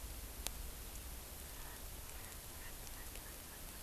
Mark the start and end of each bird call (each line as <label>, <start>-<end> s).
Erckel's Francolin (Pternistis erckelii), 1.5-3.8 s